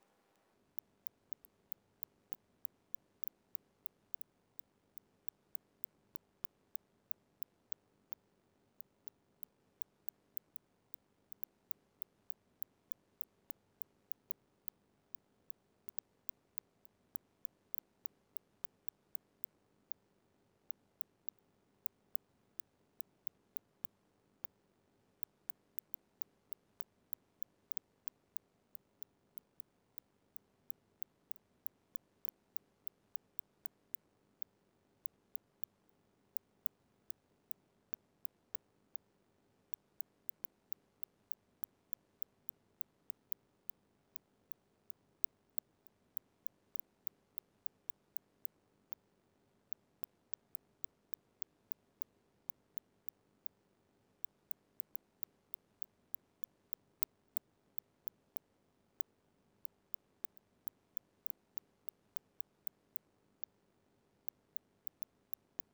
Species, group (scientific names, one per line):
Cyrtaspis scutata
Orthoptera